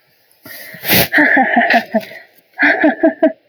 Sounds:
Laughter